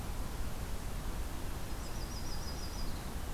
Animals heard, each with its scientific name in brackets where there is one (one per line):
Yellow-rumped Warbler (Setophaga coronata)